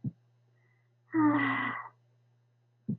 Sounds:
Sigh